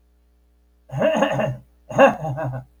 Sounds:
Throat clearing